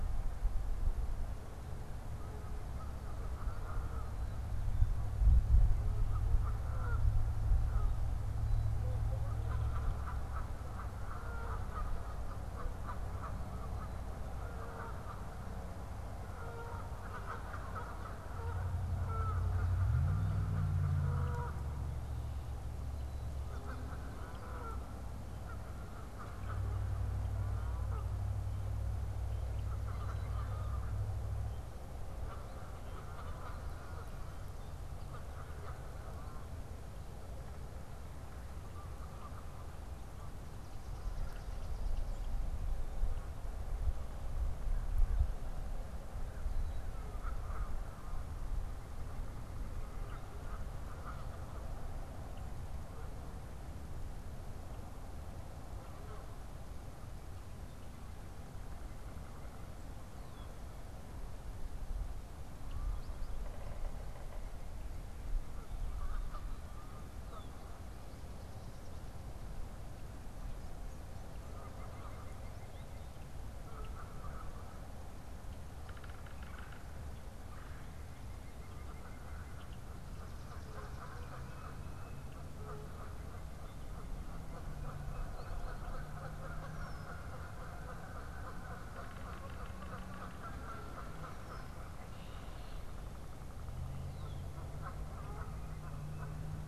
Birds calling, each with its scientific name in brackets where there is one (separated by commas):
Yellow-bellied Sapsucker (Sphyrapicus varius), White-breasted Nuthatch (Sitta carolinensis), Red-bellied Woodpecker (Melanerpes carolinus), Canada Goose (Branta canadensis)